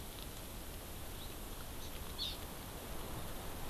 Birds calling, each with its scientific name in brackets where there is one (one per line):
Hawaii Amakihi (Chlorodrepanis virens)